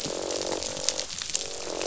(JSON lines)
{"label": "biophony, croak", "recorder": "SoundTrap 500"}